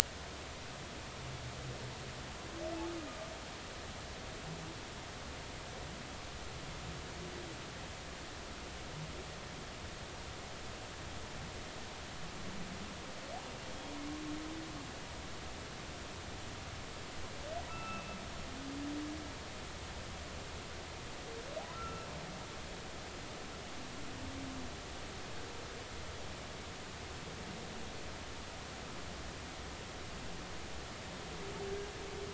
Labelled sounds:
17.7	18.2	humpback whale, 1.2 to 2.7 kHz
21.7	22.1	humpback whale, 1.2 to 2.7 kHz

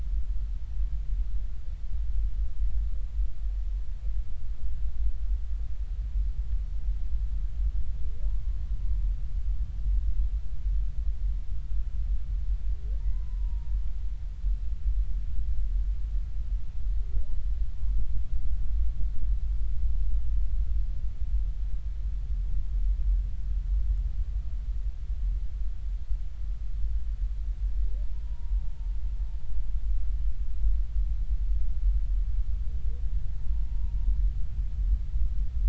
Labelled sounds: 13.0	13.7	humpback whale, 0.86 to 1.1 kHz
28.2	28.7	humpback whale, 0.86 to 0.99 kHz
33.7	33.9	humpback whale, 0.90 to 0.99 kHz

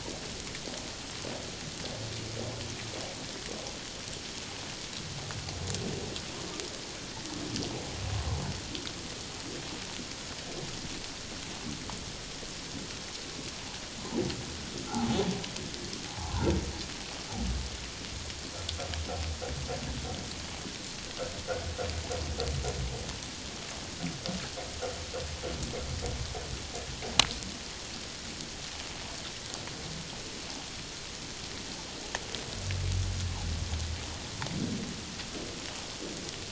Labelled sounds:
14.8	15.2	humpback whale, 0.78 to 1.5 kHz
16.1	16.4	humpback whale, 0.78 to 1.0 kHz

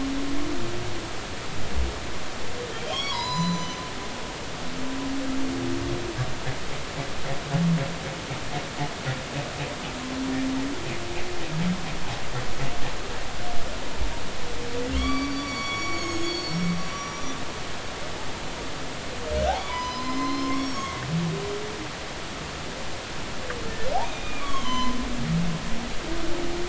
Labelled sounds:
2.7	3.9	humpback whale, 0.90 to 7.1 kHz
14.9	17.4	humpback whale, 1.1 to 6.8 kHz
19.6	21.4	humpback whale, 0.93 to 5.7 kHz
24.1	25.7	humpback whale, 0.96 to 6.2 kHz

